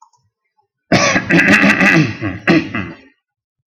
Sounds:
Throat clearing